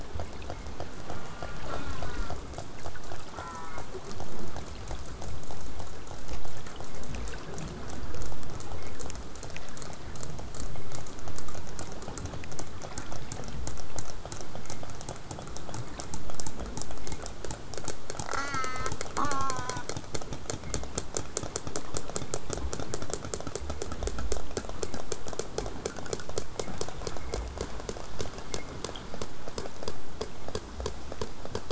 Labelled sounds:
1.1	2.3	killer whale, southern resident, J pod, call S04, 0.19 to 5.2 kHz
3.3	3.9	killer whale, southern resident, J pod, call S04, 0.66 to 2.5 kHz
18.3	19.8	killer whale, southern resident, J pod, call S04, 0.14 to 8.0 kHz

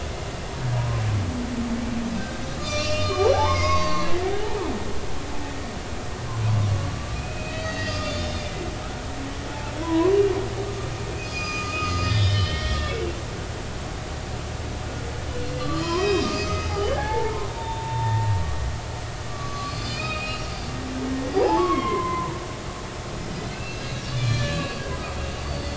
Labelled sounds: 2.2	4.1	humpback whale, 0.99 to 6.9 kHz
7.1	8.6	humpback whale, 1.2 to 5.1 kHz
9.7	10.1	humpback whale, 0.90 to 3.4 kHz
11.2	13.1	humpback whale, 1.2 to 5.2 kHz
15.6	18.4	humpback whale, 0.80 to 5.8 kHz
19.3	20.5	humpback whale, 1.1 to 4.9 kHz
21.3	22.4	humpback whale, 0.80 to 5.1 kHz
23.5	24.8	humpback whale, 1.1 to 4.2 kHz

